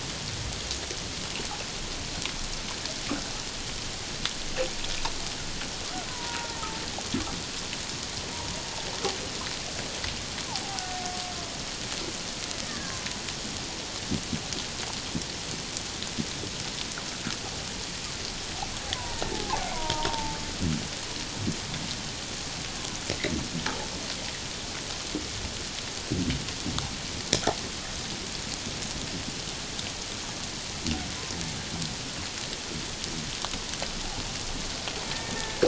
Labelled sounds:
6.1	6.6	killer whale, Bigg's (transient), 0.81 to 1.1 kHz
10.5	11.1	killer whale, Bigg's (transient), 0.78 to 1.1 kHz
12.6	13.0	killer whale, Bigg's (transient), 1.6 to 1.9 kHz
18.9	20.4	killer whale, Bigg's (transient), 0.78 to 1.9 kHz
35.1	35.6	killer whale, Bigg's (transient), 1.5 to 1.9 kHz

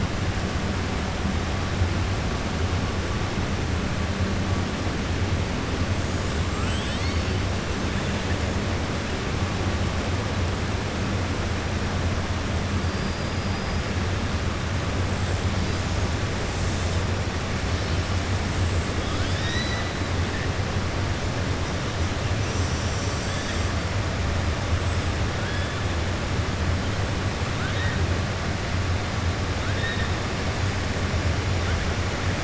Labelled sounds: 6.5	7.4	killer whale, 1.3 to 7.9 kHz
19.0	19.9	killer whale, 1.7 to 5.9 kHz
27.5	28.0	killer whale, 1.3 to 3.8 kHz

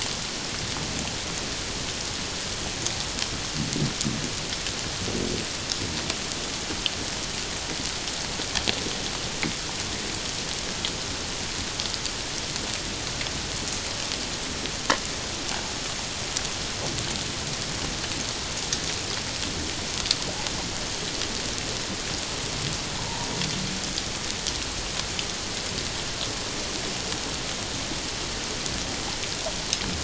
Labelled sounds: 23.0	23.3	humpback whale, 0.84 to 1.0 kHz

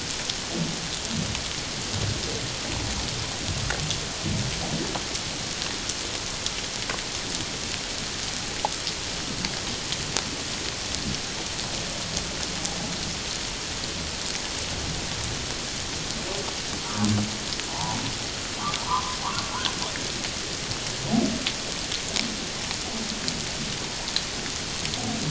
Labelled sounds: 16.8	18.0	humpback whale, 0.78 to 1.0 kHz
18.6	19.2	humpback whale, 0.88 to 1.4 kHz

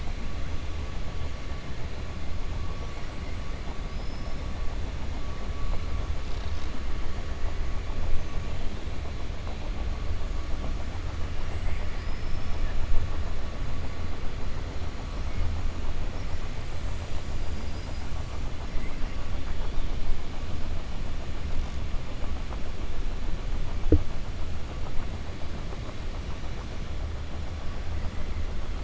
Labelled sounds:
3.8	4.4	killer whale, 5.0 to 5.4 kHz
11.9	12.6	killer whale, 4.7 to 5.4 kHz
17.3	18.1	killer whale, 4.0 to 5.6 kHz
18.7	19.1	killer whale, 1.6 to 2.8 kHz

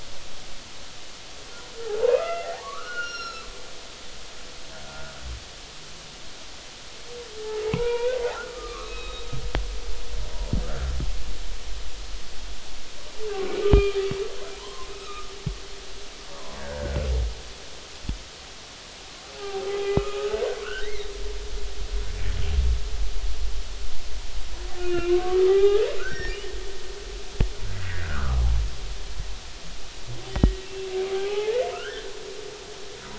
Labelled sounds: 2.1	3.5	humpback whale, 0.80 to 5.7 kHz
4.9	5.1	humpback whale, 1.4 to 1.5 kHz
7.7	8.2	humpback whale, 0.83 to 3.6 kHz
8.5	9.3	humpback whale, 1.0 to 3.9 kHz
10.7	10.9	humpback whale, 1.3 to 1.8 kHz
13.6	15.3	humpback whale, 0.90 to 3.3 kHz
16.3	17.1	humpback whale, 0.93 to 1.9 kHz
19.3	20.2	humpback whale, 0.80 to 2.6 kHz
20.6	21.1	humpback whale, 1.2 to 2.2 kHz
24.8	26.4	humpback whale, 0.80 to 5.7 kHz
27.7	28.4	humpback whale, 1.1 to 2.1 kHz
30.3	32.1	humpback whale, 0.80 to 3.3 kHz

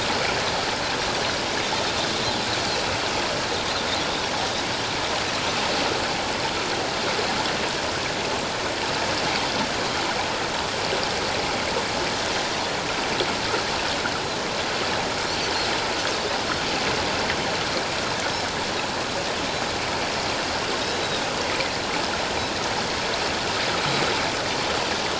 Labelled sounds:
20.8	21.2	Pacific white-sided dolphin, 3.6 to 4.0 kHz

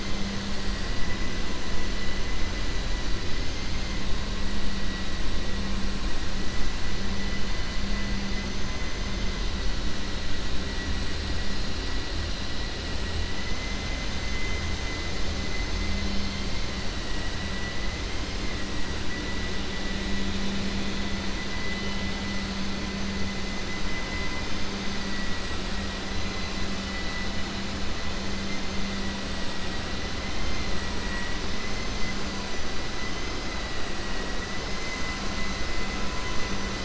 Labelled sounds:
8.1	9.2	vessel noise, 5.1 to 6.9 kHz

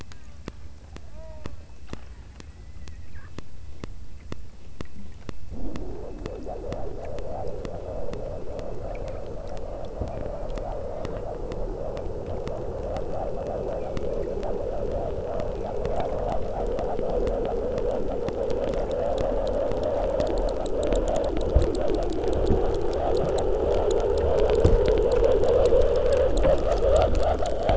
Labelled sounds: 0.1	0.5	killer whale, southern Alaska resident, 0.66 to 2.6 kHz
1.1	1.6	killer whale, southern Alaska resident, 0.43 to 3.1 kHz
2.0	2.5	killer whale, southern Alaska resident, 0.50 to 3.7 kHz

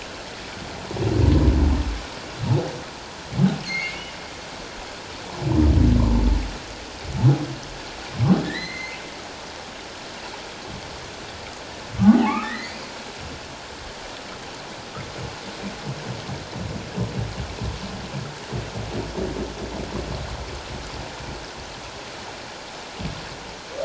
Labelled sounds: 3.6	4.0	humpback whale, 2.0 to 4.6 kHz
8.4	9.0	humpback whale, 1.7 to 6.3 kHz
12.0	12.9	humpback whale, 0.78 to 5.0 kHz

